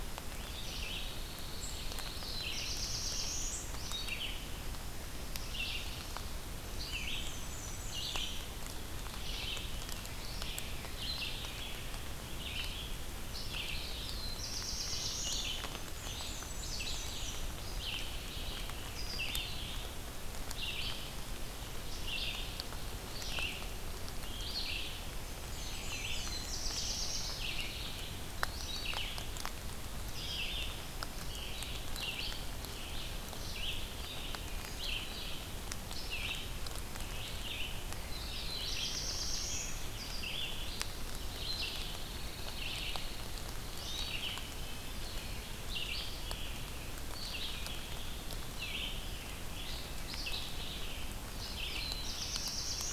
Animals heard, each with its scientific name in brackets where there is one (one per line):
Pine Warbler (Setophaga pinus)
Black-and-white Warbler (Mniotilta varia)
Wood Thrush (Hylocichla mustelina)
Black-throated Green Warbler (Setophaga virens)
Red-eyed Vireo (Vireo olivaceus)
Black-throated Blue Warbler (Setophaga caerulescens)